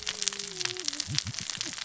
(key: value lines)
label: biophony, cascading saw
recorder: SoundTrap 600 or HydroMoth